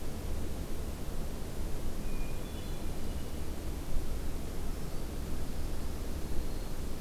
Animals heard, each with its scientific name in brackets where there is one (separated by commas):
Hermit Thrush (Catharus guttatus), Black-throated Green Warbler (Setophaga virens)